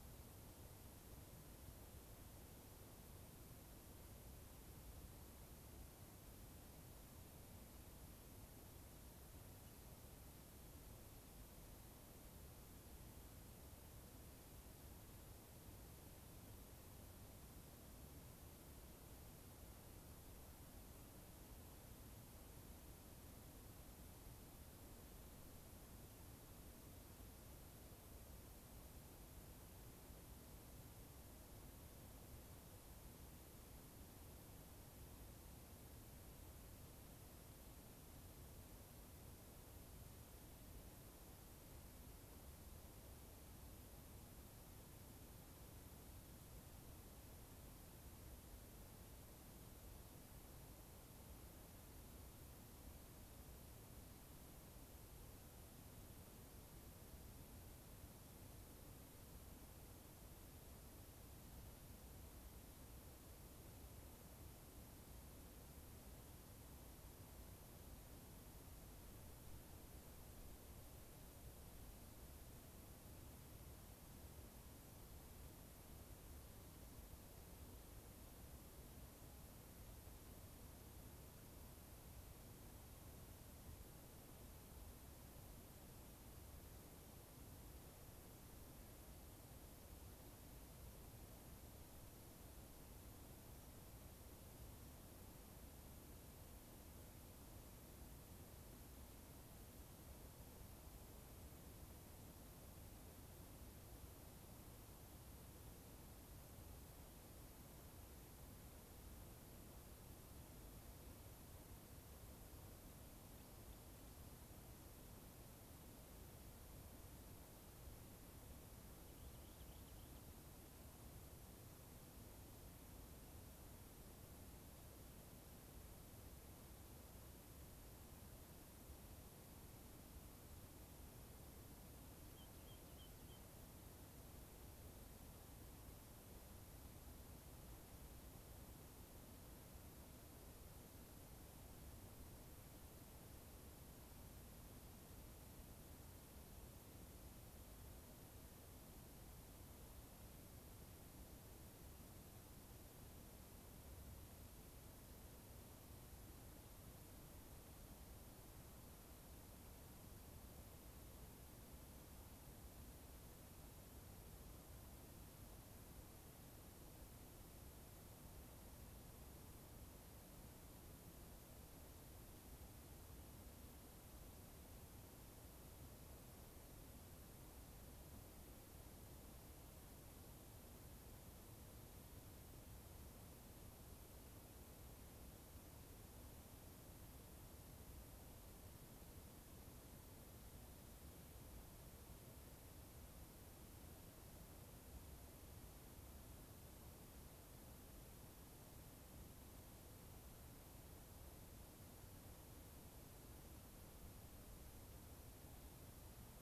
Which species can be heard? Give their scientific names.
unidentified bird, Salpinctes obsoletus